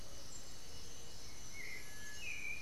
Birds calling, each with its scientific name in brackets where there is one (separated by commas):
Undulated Tinamou (Crypturellus undulatus), Black-billed Thrush (Turdus ignobilis)